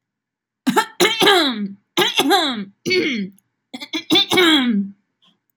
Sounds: Throat clearing